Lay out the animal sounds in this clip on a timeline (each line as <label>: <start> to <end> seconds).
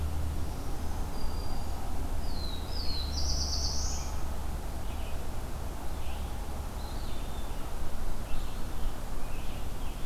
Red-eyed Vireo (Vireo olivaceus): 0.0 to 10.1 seconds
Black-throated Green Warbler (Setophaga virens): 0.3 to 1.9 seconds
Black-throated Blue Warbler (Setophaga caerulescens): 2.1 to 4.3 seconds
Eastern Wood-Pewee (Contopus virens): 6.5 to 7.5 seconds
Scarlet Tanager (Piranga olivacea): 8.2 to 10.1 seconds